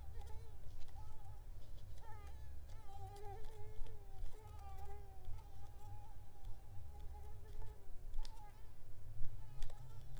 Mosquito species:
Mansonia africanus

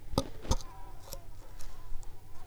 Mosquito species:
Anopheles coustani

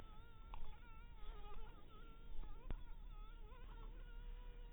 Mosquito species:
mosquito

